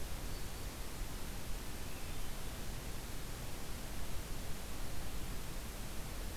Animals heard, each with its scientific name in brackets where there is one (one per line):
Black-throated Green Warbler (Setophaga virens)